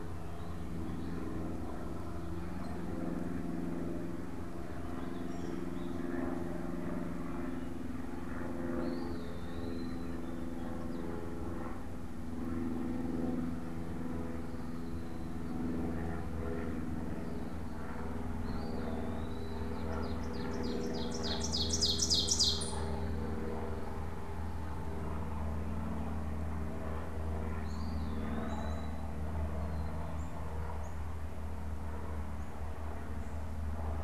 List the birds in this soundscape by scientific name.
Vireo gilvus, Turdus migratorius, Contopus virens, Seiurus aurocapilla, Poecile atricapillus